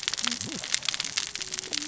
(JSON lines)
{"label": "biophony, cascading saw", "recorder": "SoundTrap 600 or HydroMoth"}